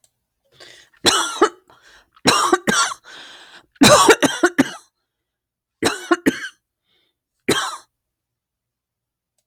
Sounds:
Cough